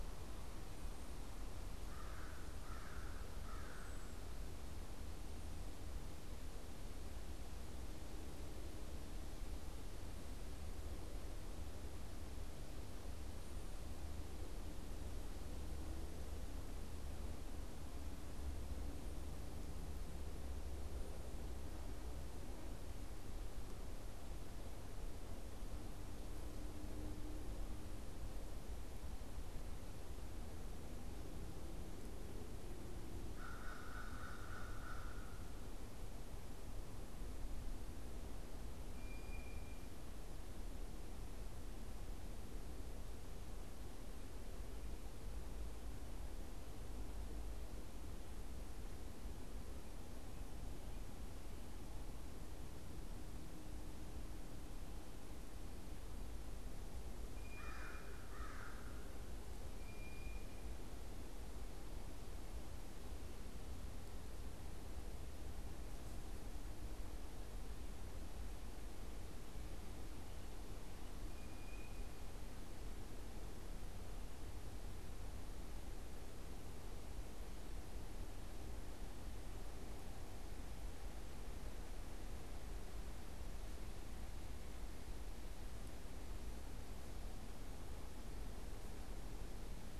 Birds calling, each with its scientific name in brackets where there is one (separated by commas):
American Crow (Corvus brachyrhynchos), Blue Jay (Cyanocitta cristata)